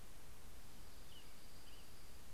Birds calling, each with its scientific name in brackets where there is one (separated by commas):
Dark-eyed Junco (Junco hyemalis), American Robin (Turdus migratorius)